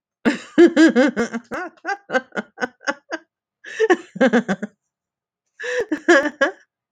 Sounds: Laughter